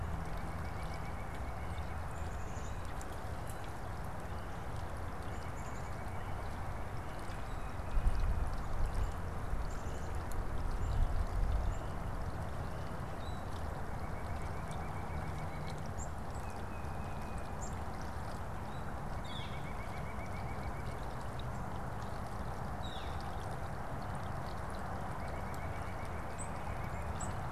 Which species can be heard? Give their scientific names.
Sitta carolinensis, Poecile atricapillus, Baeolophus bicolor, Colaptes auratus